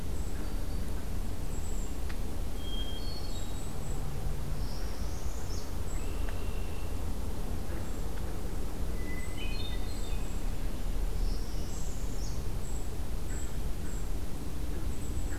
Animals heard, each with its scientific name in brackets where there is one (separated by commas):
Golden-crowned Kinglet (Regulus satrapa), Northern Parula (Setophaga americana), Hermit Thrush (Catharus guttatus), Red-winged Blackbird (Agelaius phoeniceus)